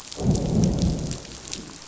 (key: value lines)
label: biophony, growl
recorder: SoundTrap 500